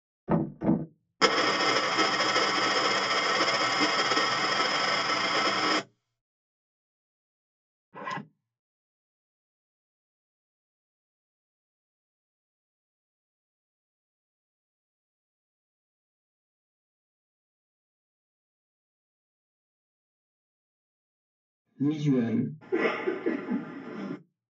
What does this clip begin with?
knock